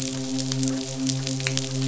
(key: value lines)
label: biophony, midshipman
recorder: SoundTrap 500